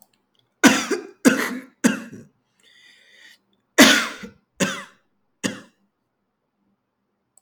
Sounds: Cough